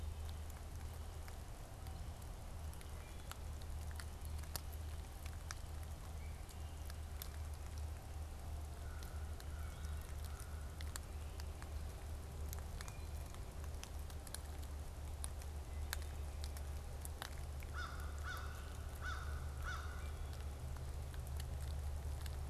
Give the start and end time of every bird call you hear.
8.5s-10.8s: American Crow (Corvus brachyrhynchos)
17.5s-20.4s: American Crow (Corvus brachyrhynchos)

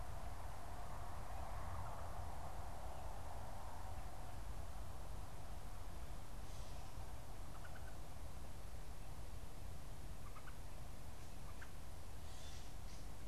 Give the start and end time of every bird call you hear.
6.6s-11.8s: unidentified bird
12.2s-12.9s: Gray Catbird (Dumetella carolinensis)

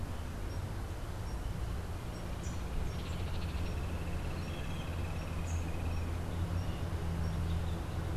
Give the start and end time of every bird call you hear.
0.0s-8.2s: Rufous-capped Warbler (Basileuterus rufifrons)
2.7s-6.4s: Hoffmann's Woodpecker (Melanerpes hoffmannii)

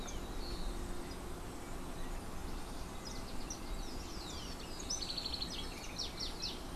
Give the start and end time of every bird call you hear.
4.8s-6.7s: House Wren (Troglodytes aedon)

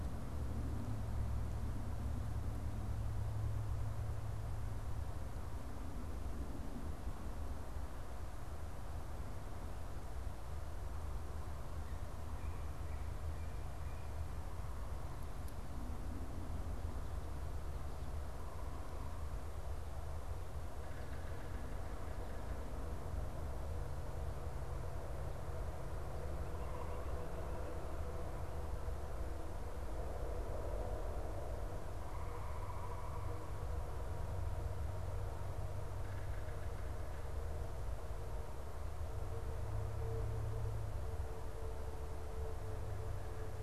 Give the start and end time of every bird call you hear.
20.9s-22.9s: Yellow-bellied Sapsucker (Sphyrapicus varius)
35.9s-37.7s: Yellow-bellied Sapsucker (Sphyrapicus varius)

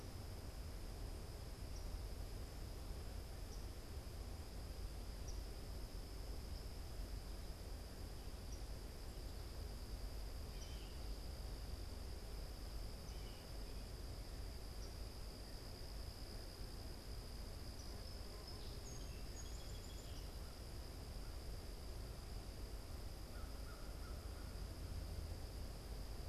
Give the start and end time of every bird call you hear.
0.0s-17.9s: unidentified bird
10.4s-11.1s: Blue Jay (Cyanocitta cristata)
18.0s-20.5s: Song Sparrow (Melospiza melodia)
23.1s-24.7s: American Crow (Corvus brachyrhynchos)

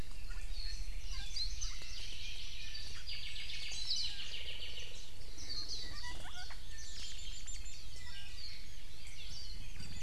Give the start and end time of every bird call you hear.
0.3s-0.5s: Chinese Hwamei (Garrulax canorus)
1.0s-1.4s: Iiwi (Drepanis coccinea)
1.3s-1.6s: Hawaii Creeper (Loxops mana)
1.6s-1.9s: Chinese Hwamei (Garrulax canorus)
3.1s-5.0s: Apapane (Himatione sanguinea)
3.9s-4.2s: Warbling White-eye (Zosterops japonicus)
4.6s-5.1s: Iiwi (Drepanis coccinea)
5.4s-6.3s: Warbling White-eye (Zosterops japonicus)
5.4s-6.7s: Iiwi (Drepanis coccinea)
7.9s-8.6s: Iiwi (Drepanis coccinea)
9.3s-9.7s: Warbling White-eye (Zosterops japonicus)

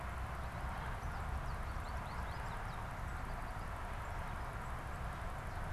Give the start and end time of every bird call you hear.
0.0s-5.7s: American Goldfinch (Spinus tristis)

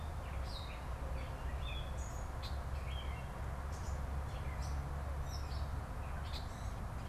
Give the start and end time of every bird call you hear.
0.0s-7.1s: Gray Catbird (Dumetella carolinensis)
0.0s-7.1s: Red-winged Blackbird (Agelaius phoeniceus)

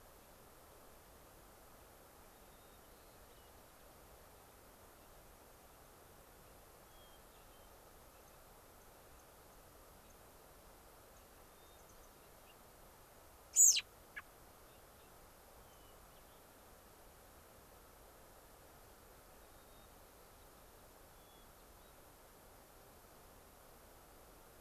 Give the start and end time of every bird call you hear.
2.3s-3.8s: White-crowned Sparrow (Zonotrichia leucophrys)
5.4s-5.9s: White-crowned Sparrow (Zonotrichia leucophrys)
6.8s-7.7s: Hermit Thrush (Catharus guttatus)
8.2s-8.3s: White-crowned Sparrow (Zonotrichia leucophrys)
9.1s-9.2s: White-crowned Sparrow (Zonotrichia leucophrys)
9.5s-9.6s: White-crowned Sparrow (Zonotrichia leucophrys)
11.1s-11.2s: White-crowned Sparrow (Zonotrichia leucophrys)
11.5s-12.5s: Hermit Thrush (Catharus guttatus)
11.6s-12.1s: White-crowned Sparrow (Zonotrichia leucophrys)
13.5s-14.2s: American Robin (Turdus migratorius)
15.7s-15.8s: White-crowned Sparrow (Zonotrichia leucophrys)
15.7s-16.4s: Hermit Thrush (Catharus guttatus)
19.4s-19.9s: Hermit Thrush (Catharus guttatus)
21.1s-21.9s: Hermit Thrush (Catharus guttatus)

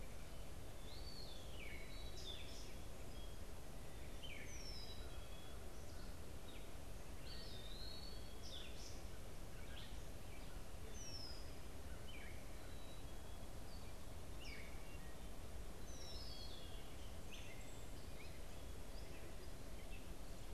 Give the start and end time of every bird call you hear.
0.0s-20.5s: Gray Catbird (Dumetella carolinensis)
0.8s-1.9s: Eastern Wood-Pewee (Contopus virens)
4.0s-20.5s: Red-winged Blackbird (Agelaius phoeniceus)
7.2s-8.5s: Eastern Wood-Pewee (Contopus virens)
15.9s-16.9s: Black-capped Chickadee (Poecile atricapillus)

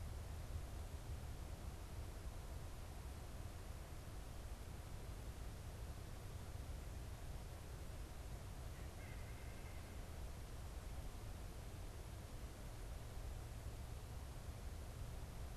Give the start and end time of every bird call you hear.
8.5s-10.0s: White-breasted Nuthatch (Sitta carolinensis)

